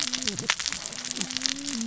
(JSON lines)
{"label": "biophony, cascading saw", "recorder": "SoundTrap 600 or HydroMoth"}